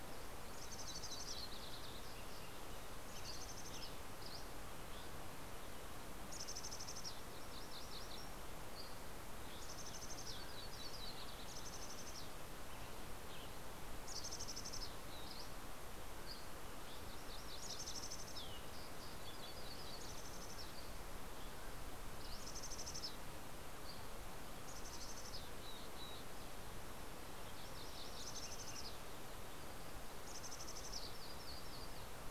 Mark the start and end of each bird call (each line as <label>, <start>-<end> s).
Mountain Chickadee (Poecile gambeli), 0.0-23.4 s
Yellow-rumped Warbler (Setophaga coronata), 0.5-2.7 s
Dusky Flycatcher (Empidonax oberholseri), 4.1-5.3 s
MacGillivray's Warbler (Geothlypis tolmiei), 7.2-8.6 s
Dusky Flycatcher (Empidonax oberholseri), 8.5-9.7 s
Yellow-rumped Warbler (Setophaga coronata), 10.1-11.8 s
Western Tanager (Piranga ludoviciana), 12.6-13.9 s
Dusky Flycatcher (Empidonax oberholseri), 15.2-17.2 s
MacGillivray's Warbler (Geothlypis tolmiei), 17.1-18.5 s
Dusky Flycatcher (Empidonax oberholseri), 20.6-21.7 s
Dusky Flycatcher (Empidonax oberholseri), 23.4-24.3 s
Mountain Chickadee (Poecile gambeli), 24.3-26.5 s
MacGillivray's Warbler (Geothlypis tolmiei), 27.0-28.7 s
Mountain Chickadee (Poecile gambeli), 28.0-31.2 s
MacGillivray's Warbler (Geothlypis tolmiei), 30.8-32.3 s